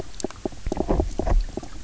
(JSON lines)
{"label": "biophony, knock croak", "recorder": "SoundTrap 300"}